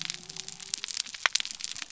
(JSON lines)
{"label": "biophony", "recorder": "SoundTrap 300"}